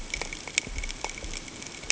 {"label": "ambient", "recorder": "HydroMoth"}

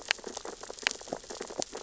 {"label": "biophony, sea urchins (Echinidae)", "recorder": "SoundTrap 600 or HydroMoth"}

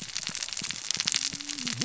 {"label": "biophony, cascading saw", "recorder": "SoundTrap 600 or HydroMoth"}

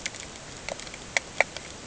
{"label": "ambient", "recorder": "HydroMoth"}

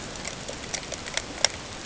{"label": "ambient", "recorder": "HydroMoth"}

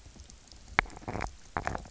{"label": "biophony, knock croak", "recorder": "SoundTrap 300"}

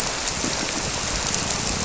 {"label": "biophony", "recorder": "SoundTrap 300"}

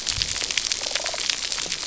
{"label": "biophony", "recorder": "SoundTrap 300"}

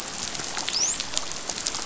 {"label": "biophony, dolphin", "recorder": "SoundTrap 500"}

